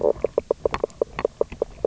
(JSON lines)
{"label": "biophony, knock croak", "recorder": "SoundTrap 300"}